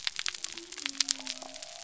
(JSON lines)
{"label": "biophony", "recorder": "SoundTrap 300"}